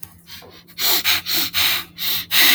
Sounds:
Sniff